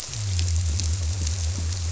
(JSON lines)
{"label": "biophony", "recorder": "SoundTrap 300"}